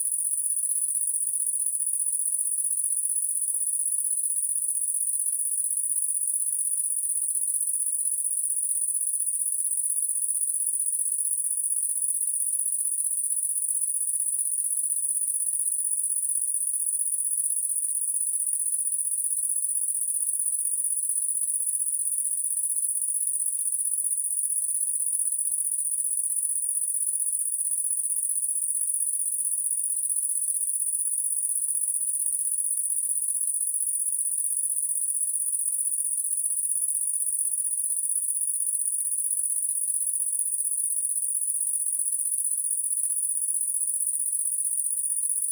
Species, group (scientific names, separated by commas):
Tettigonia viridissima, Orthoptera